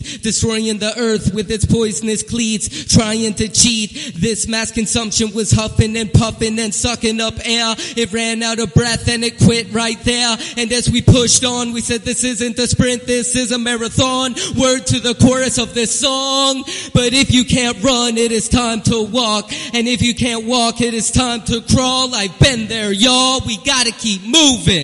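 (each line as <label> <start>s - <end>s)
Someone is rapping in a room with an echo. 0.0s - 24.8s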